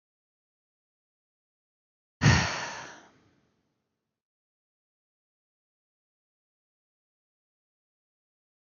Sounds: Sigh